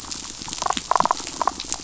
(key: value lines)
label: biophony, damselfish
recorder: SoundTrap 500

label: biophony
recorder: SoundTrap 500